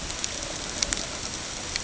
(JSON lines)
{"label": "ambient", "recorder": "HydroMoth"}